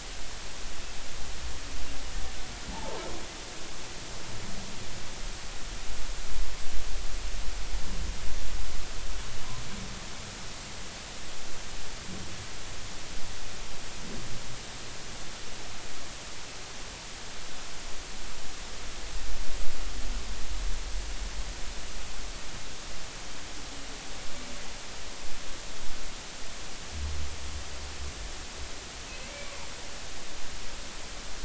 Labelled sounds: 2.7	3.0	humpback whale, 0.80 to 1.1 kHz

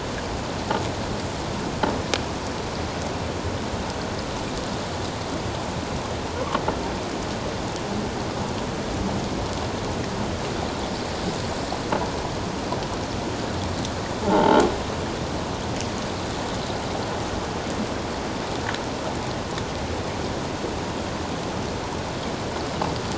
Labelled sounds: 14.2	14.6	croaking sound likely from a nearby submerged object, 0.78 to 3.2 kHz

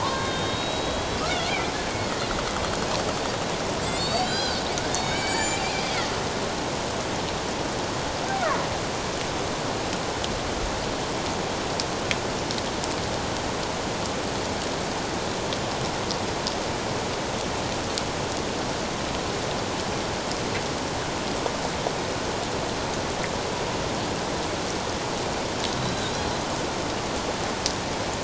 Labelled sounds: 0.0	1.5	killer whale, Bigg's (transient), 0.88 to 4.0 kHz
3.9	4.6	killer whale, Bigg's (transient), 1.4 to 7.5 kHz
4.9	5.6	killer whale, Bigg's (transient), 1.5 to 7.2 kHz
25.8	26.1	killer whale, Bigg's (transient), 3.7 to 4.1 kHz

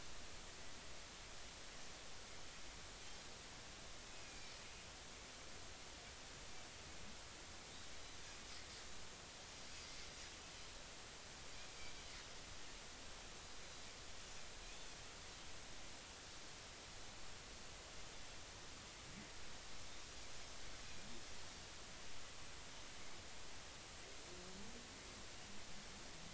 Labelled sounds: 4.2	4.5	Pacific white-sided dolphin, 2.3 to 2.5 kHz
14.7	15.0	Pacific white-sided dolphin, 3.3 to 3.6 kHz

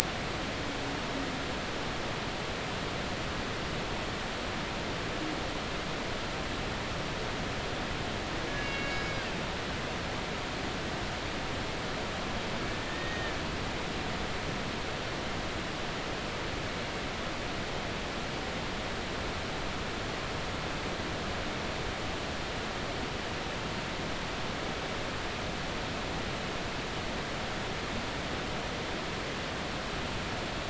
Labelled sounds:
8.5	9.1	humpback whale, 1.6 to 6.7 kHz
12.7	13.4	humpback whale, 1.7 to 3.8 kHz

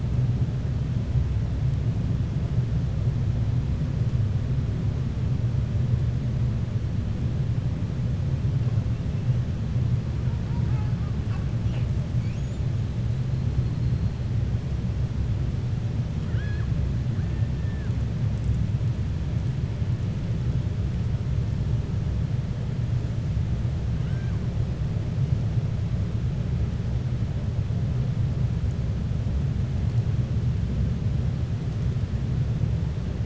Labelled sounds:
10.4	11.1	killer whale, 0.82 to 2.7 kHz
23.9	24.4	killer whale, 1.1 to 3.1 kHz

